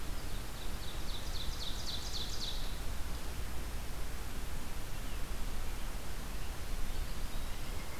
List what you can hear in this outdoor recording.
Ovenbird, Pileated Woodpecker